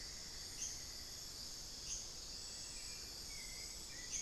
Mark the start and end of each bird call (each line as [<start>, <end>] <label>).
[0.00, 1.27] Cinnamon-throated Woodcreeper (Dendrexetastes rufigula)
[0.00, 4.22] Hauxwell's Thrush (Turdus hauxwelli)
[0.00, 4.22] unidentified bird